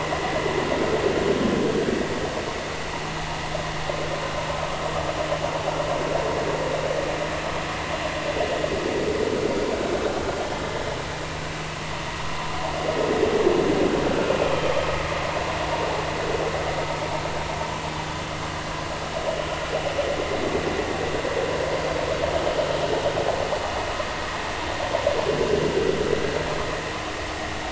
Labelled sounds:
14.0	14.4	vessel noise, 1.3 to 1.6 kHz

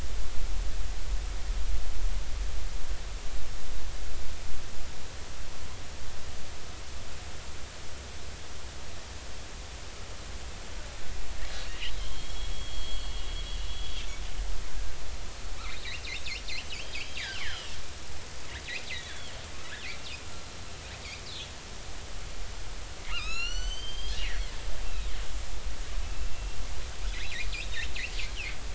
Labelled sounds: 12.0	12.9	killer whale, northern resident, A clan, AA subclan, A01 pod, call N11, 2.9 to 4.4 kHz
13.5	14.0	killer whale, northern resident, A clan, AA subclan, A01 pod, call N11, 3.1 to 3.4 kHz
16.6	17.8	killer whale, northern resident, 1.3 to 3.4 kHz
19.0	19.3	killer whale, northern resident, 2.9 to 3.5 kHz
23.1	24.5	killer whale, northern resident, A clan, AA subclan, A01 pod, call N05i, 1.2 to 7.7 kHz
24.8	25.1	killer whale, northern resident, 2.4 to 2.8 kHz
26.0	26.6	killer whale, northern resident, 2.6 to 2.8 kHz
27.2	27.9	killer whale, northern resident, 3.5 to 4.2 kHz
28.3	28.6	killer whale, northern resident, 2.0 to 3.3 kHz

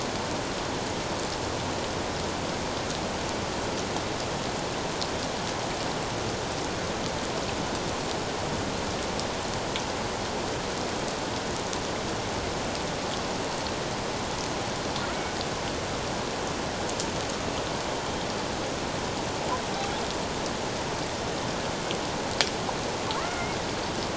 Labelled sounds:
23.1	23.6	killer whale, Bigg's (transient), call T01, 0.84 to 2.2 kHz

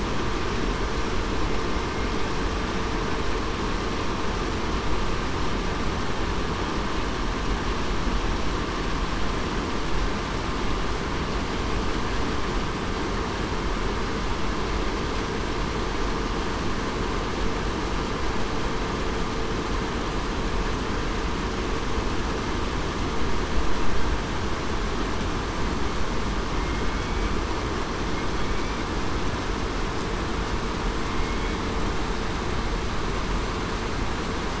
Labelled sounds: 27.0	27.3	killer whale, southern resident, 2.2 to 2.3 kHz
31.1	31.5	killer whale, southern resident, 2.1 to 2.2 kHz

